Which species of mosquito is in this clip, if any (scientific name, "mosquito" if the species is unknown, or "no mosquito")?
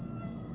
Aedes albopictus